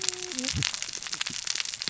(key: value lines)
label: biophony, cascading saw
recorder: SoundTrap 600 or HydroMoth